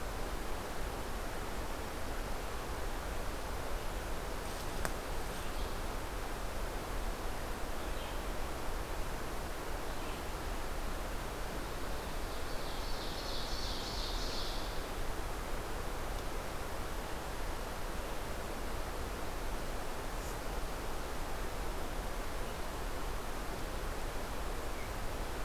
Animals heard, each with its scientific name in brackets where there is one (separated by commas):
Red-eyed Vireo (Vireo olivaceus), Ovenbird (Seiurus aurocapilla)